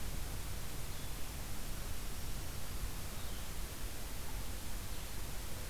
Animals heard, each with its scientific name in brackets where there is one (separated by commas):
Black-throated Green Warbler (Setophaga virens)